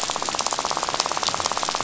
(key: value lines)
label: biophony, rattle
recorder: SoundTrap 500